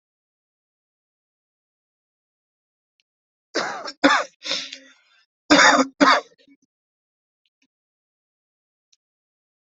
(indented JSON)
{
  "expert_labels": [
    {
      "quality": "good",
      "cough_type": "dry",
      "dyspnea": false,
      "wheezing": false,
      "stridor": false,
      "choking": false,
      "congestion": true,
      "nothing": false,
      "diagnosis": "upper respiratory tract infection",
      "severity": "mild"
    }
  ],
  "age": 30,
  "gender": "male",
  "respiratory_condition": false,
  "fever_muscle_pain": false,
  "status": "COVID-19"
}